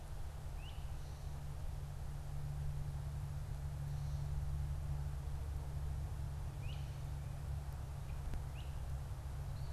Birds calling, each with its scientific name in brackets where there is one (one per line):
Great Crested Flycatcher (Myiarchus crinitus)